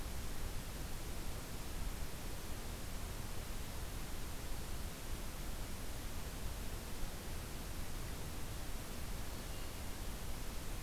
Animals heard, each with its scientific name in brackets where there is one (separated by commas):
Hermit Thrush (Catharus guttatus)